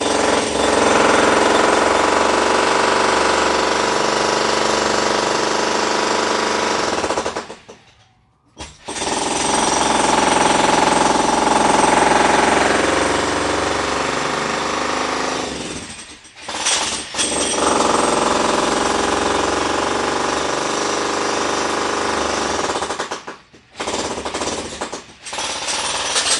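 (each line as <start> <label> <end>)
0.0 A jackhammer is being used with brief pauses of about two seconds. 7.5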